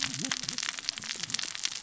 {"label": "biophony, cascading saw", "recorder": "SoundTrap 600 or HydroMoth"}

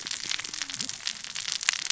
{"label": "biophony, cascading saw", "recorder": "SoundTrap 600 or HydroMoth"}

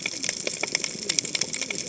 {"label": "biophony, cascading saw", "recorder": "HydroMoth"}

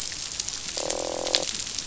{"label": "biophony, croak", "recorder": "SoundTrap 500"}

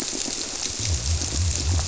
{"label": "biophony, squirrelfish (Holocentrus)", "recorder": "SoundTrap 300"}
{"label": "biophony", "recorder": "SoundTrap 300"}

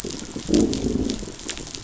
{"label": "biophony, growl", "recorder": "SoundTrap 500"}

